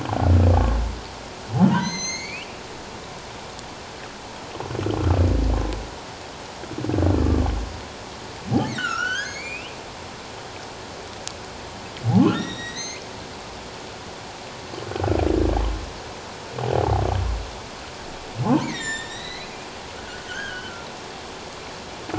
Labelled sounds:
1.6	2.5	humpback whale, 0.91 to 6.9 kHz
8.7	9.8	humpback whale, 1.2 to 6.8 kHz
12.3	13.1	humpback whale, 1.8 to 7.8 kHz
14.9	15.2	humpback whale, 1.2 to 1.6 kHz
16.7	17.0	humpback whale, 0.78 to 0.94 kHz
18.6	19.5	humpback whale, 1.7 to 7.7 kHz
20.0	20.9	humpback whale, 1.3 to 3.3 kHz

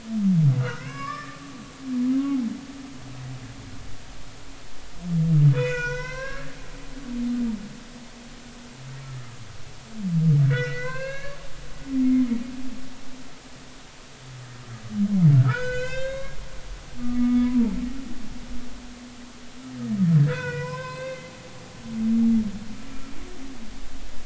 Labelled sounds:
0.6	1.4	humpback whale, 0.99 to 5.2 kHz
5.5	6.6	humpback whale, 0.93 to 6.5 kHz
10.5	11.4	humpback whale, 0.96 to 4.3 kHz
15.3	16.4	humpback whale, 0.90 to 7.4 kHz
17.2	17.7	humpback whale, 0.83 to 1.3 kHz
18.2	18.5	humpback whale, 2.1 to 2.3 kHz
20.2	21.3	humpback whale, 0.90 to 5.2 kHz

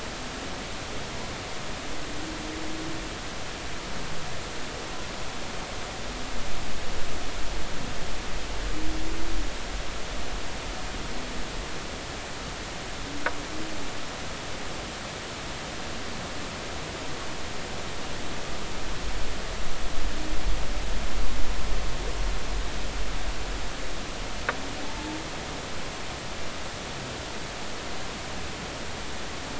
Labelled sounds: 24.8	25.1	humpback whale, 0.80 to 0.93 kHz

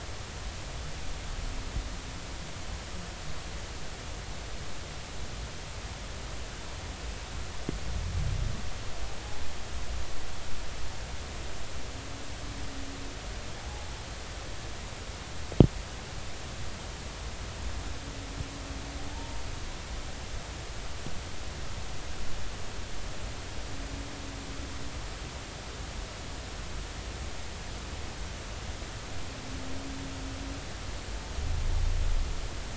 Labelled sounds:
13.6	13.9	humpback whale, 0.80 to 0.93 kHz
19.1	19.4	humpback whale, 0.83 to 0.96 kHz

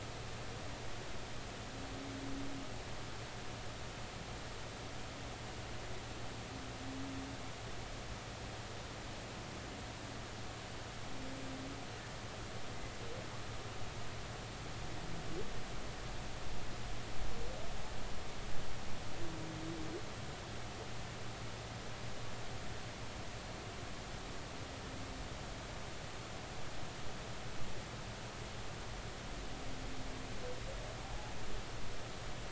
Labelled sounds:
31.0	31.3	humpback whale, 0.80 to 0.96 kHz

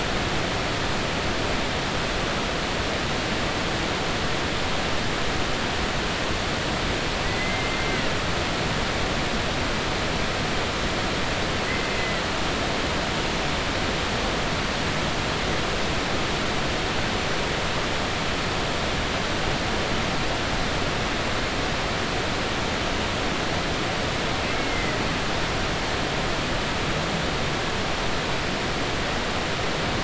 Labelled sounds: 7.2	7.9	humpback whale, 1.9 to 2.1 kHz
11.9	12.2	humpback whale, 2.0 to 2.1 kHz
24.4	25.0	humpback whale, 1.9 to 2.2 kHz

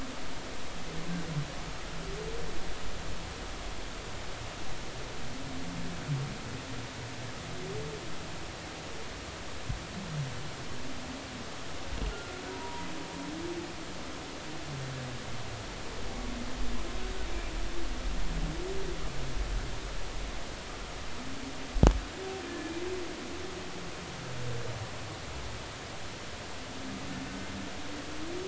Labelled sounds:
12.1	12.9	humpback whale, 0.90 to 1.5 kHz
22.5	22.7	humpback whale, 1.7 to 1.8 kHz

